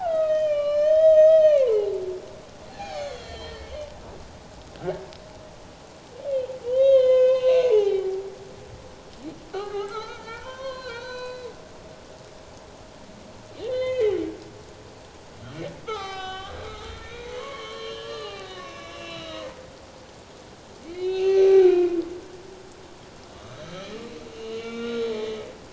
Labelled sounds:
0.0	1.9	humpback whale, 0.78 to 6.4 kHz
2.7	3.7	humpback whale, 0.78 to 4.7 kHz
6.6	8.2	humpback whale, 0.78 to 5.3 kHz
9.5	11.5	humpback whale, 0.84 to 6.2 kHz
13.7	14.2	humpback whale, 1.8 to 4.2 kHz
15.8	19.6	humpback whale, 0.78 to 6.4 kHz
20.8	22.0	humpback whale, 0.78 to 4.3 kHz
23.3	25.2	humpback whale, 1.1 to 6.2 kHz

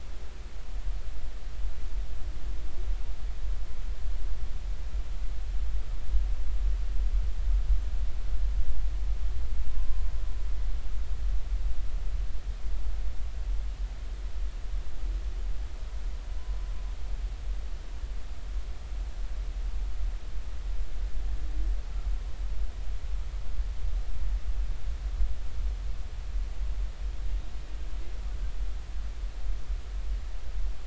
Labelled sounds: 9.7	10.1	humpback whale, 0.99 to 1.1 kHz
16.4	16.7	humpback whale, 0.99 to 1.1 kHz

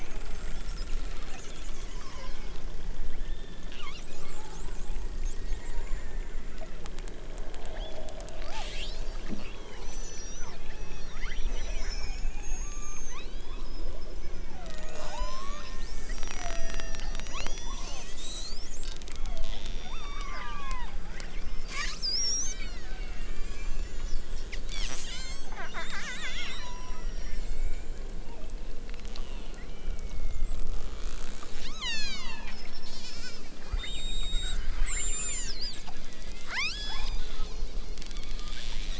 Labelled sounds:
1.8	2.4	killer whale, southern Alaska resident, 0.78 to 3.6 kHz
3.1	3.7	killer whale, southern Alaska resident, 1.3 to 4.0 kHz
7.7	12.1	killer whale, southern Alaska resident, 0.55 to 8.0 kHz
12.6	13.7	killer whale, southern Alaska resident, 0.60 to 5.7 kHz
14.2	14.7	killer whale, southern Alaska resident, 0.96 to 3.7 kHz
15.0	15.8	killer whale, southern Alaska resident, 0.73 to 8.0 kHz
16.3	24.2	killer whale, southern Alaska resident, 0.37 to 8.0 kHz
24.7	25.6	killer whale, southern Alaska resident, 0.69 to 8.0 kHz
26.3	28.6	killer whale, southern Alaska resident, 0.55 to 6.8 kHz
29.1	30.7	killer whale, southern Alaska resident, 1.5 to 4.9 kHz
31.5	35.8	killer whale, southern Alaska resident, 0.64 to 8.0 kHz
36.4	37.9	killer whale, southern Alaska resident, 0.50 to 8.0 kHz

